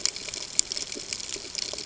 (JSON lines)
{"label": "ambient", "recorder": "HydroMoth"}